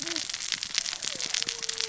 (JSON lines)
{"label": "biophony, cascading saw", "recorder": "SoundTrap 600 or HydroMoth"}